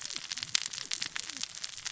{"label": "biophony, cascading saw", "recorder": "SoundTrap 600 or HydroMoth"}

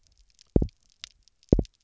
{"label": "biophony, double pulse", "recorder": "SoundTrap 300"}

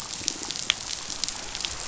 {"label": "biophony", "recorder": "SoundTrap 500"}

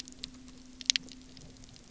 {"label": "anthrophony, boat engine", "recorder": "SoundTrap 300"}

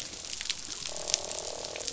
{"label": "biophony, croak", "recorder": "SoundTrap 500"}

